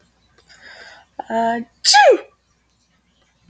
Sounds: Sneeze